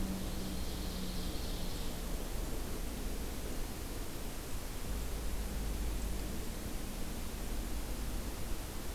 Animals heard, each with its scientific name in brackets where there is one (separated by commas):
Ovenbird (Seiurus aurocapilla)